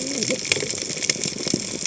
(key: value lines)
label: biophony, cascading saw
recorder: HydroMoth